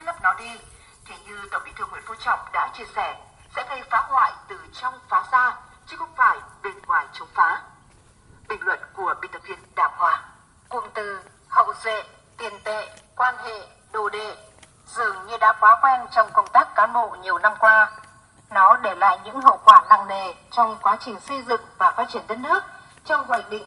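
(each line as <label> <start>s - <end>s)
A woman is speaking continuously in Vietnamese. 0.0s - 23.7s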